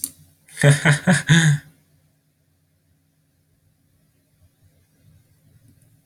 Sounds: Laughter